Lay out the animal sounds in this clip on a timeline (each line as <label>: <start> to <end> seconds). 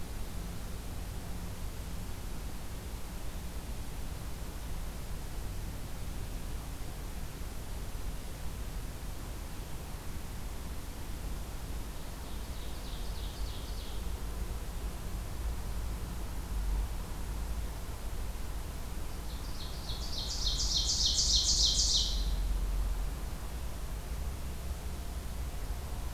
Ovenbird (Seiurus aurocapilla): 11.9 to 14.1 seconds
Ovenbird (Seiurus aurocapilla): 19.3 to 22.4 seconds